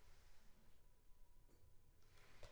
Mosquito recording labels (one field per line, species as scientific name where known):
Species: Anopheles funestus s.s.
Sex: female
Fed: unfed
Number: one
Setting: cup